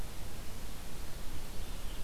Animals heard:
forest ambience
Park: Marsh-Billings-Rockefeller National Historical Park